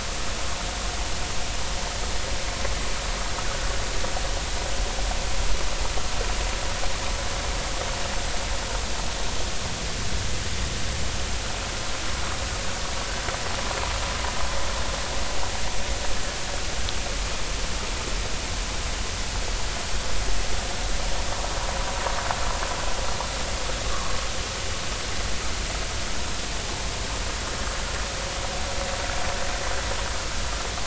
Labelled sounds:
3.4	3.7	vessel noise, 1.4 to 1.6 kHz

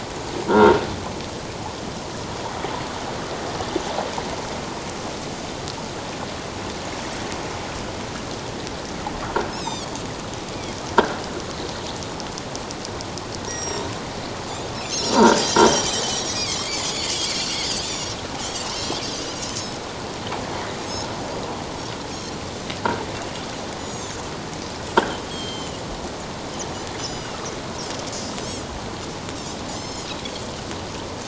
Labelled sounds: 9.5	9.9	Pacific white-sided dolphin, 3.2 to 7.7 kHz
13.5	13.8	Pacific white-sided dolphin, 5.4 to 7.7 kHz
14.8	15.4	Pacific white-sided dolphin, 1.3 to 6.0 kHz
15.6	16.0	croaking sound likely from a nearby submerged object, 2.9 to 3.3 kHz
16.0	17.1	Pacific white-sided dolphin, 2.0 to 7.3 kHz
17.7	19.0	Pacific white-sided dolphin, 3.0 to 7.2 kHz
20.8	21.1	Pacific white-sided dolphin, 6.3 to 7.9 kHz
22.2	22.4	Pacific white-sided dolphin, 4.0 to 4.4 kHz
23.8	24.2	Pacific white-sided dolphin, 5.6 to 7.9 kHz
25.0	25.3	croaking sound likely from a nearby submerged object, 3.0 to 3.4 kHz
25.3	25.8	Pacific white-sided dolphin, 2.8 to 7.7 kHz
27.0	27.3	Pacific white-sided dolphin, 4.8 to 7.1 kHz
29.7	30.1	Pacific white-sided dolphin, 3.0 to 7.4 kHz

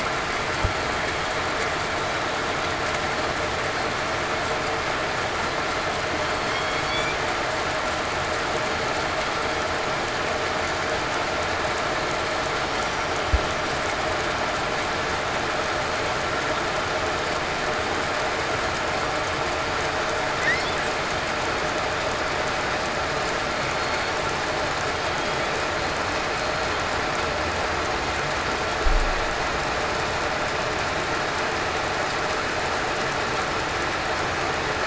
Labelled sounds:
6.5	6.8	killer whale, southern resident, 3.1 to 3.3 kHz
23.7	24.1	killer whale, southern resident, 4.3 to 4.4 kHz
25.1	25.5	killer whale, southern resident, 3.2 to 3.5 kHz

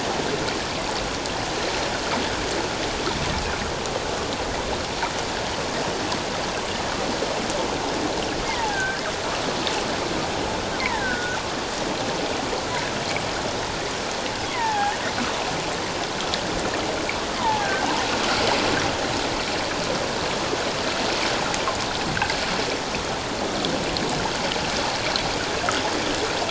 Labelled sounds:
8.5	9.0	killer whale, offshore, call OFF17, 0.78 to 1.9 kHz
10.8	11.4	killer whale, offshore, call OFF17, 1.2 to 2.4 kHz
14.5	15.0	killer whale, offshore, call OFF17, 0.78 to 2.2 kHz
17.4	17.9	killer whale, offshore, call OFF17, 0.78 to 1.7 kHz
22.1	22.4	water noise, 1.4 to 1.7 kHz

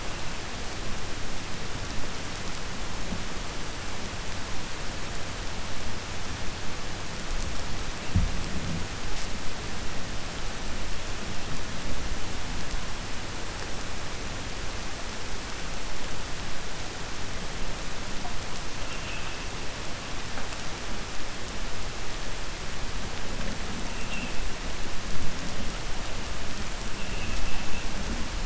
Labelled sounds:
18.8	19.4	vessel noise, 2.4 to 3.4 kHz
27.0	27.8	vessel noise, 1.7 to 3.1 kHz

